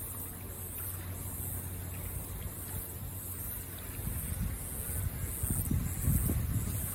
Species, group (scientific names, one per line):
Birrima castanea
Cicadidae